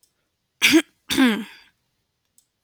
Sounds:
Throat clearing